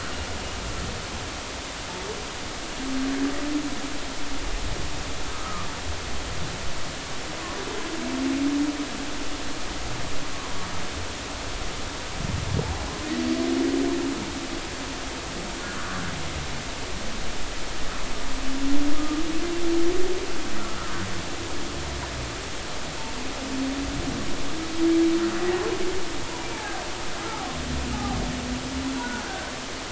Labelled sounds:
5.3	5.7	humpback whale, 1.0 to 1.4 kHz
20.6	20.9	humpback whale, 1.2 to 1.5 kHz
26.5	26.8	humpback whale, 0.80 to 1.8 kHz
27.9	28.2	humpback whale, 0.80 to 0.90 kHz
29.0	29.5	humpback whale, 1.4 to 1.7 kHz

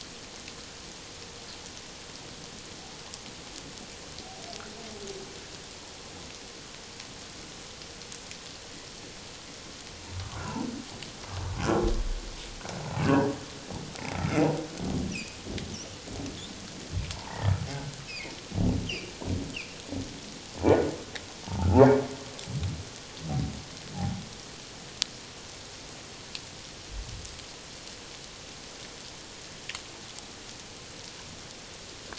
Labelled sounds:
10.4	10.6	humpback whale, 1.3 to 1.5 kHz
13.0	14.5	humpback whale, 1.2 to 2.8 kHz
15.1	15.4	humpback whale, 2.3 to 2.9 kHz
17.1	17.6	humpback whale, 0.78 to 2.0 kHz
18.1	18.3	humpback whale, 1.9 to 2.7 kHz
18.9	19.1	humpback whale, 2.2 to 3.3 kHz
23.9	24.2	humpback whale, 0.78 to 0.88 kHz

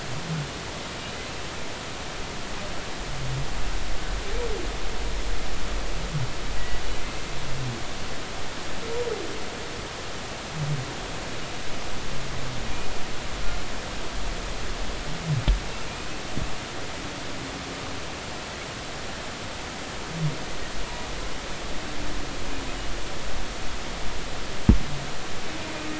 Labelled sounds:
6.6	6.8	humpback whale, 1.9 to 2.0 kHz

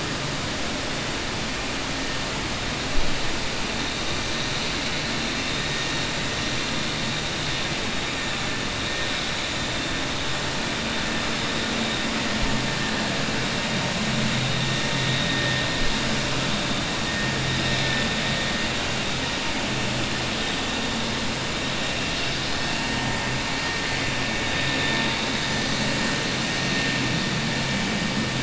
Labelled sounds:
24.5	25.5	vessel noise, 0.95 to 4.4 kHz

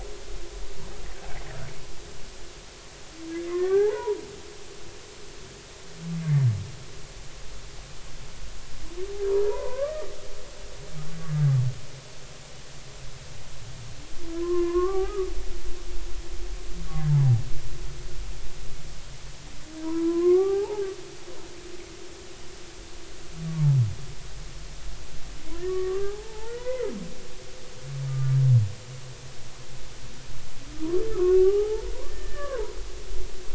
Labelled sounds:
3.5	4.2	humpback whale, 0.80 to 1.7 kHz
9.4	10.1	humpback whale, 0.86 to 2.0 kHz
14.4	15.3	humpback whale, 0.80 to 1.8 kHz
19.8	20.8	humpback whale, 0.80 to 1.4 kHz
25.6	26.9	humpback whale, 0.80 to 2.1 kHz
28.1	28.4	humpback whale, 1.1 to 1.2 kHz
31.1	32.8	humpback whale, 0.80 to 1.9 kHz

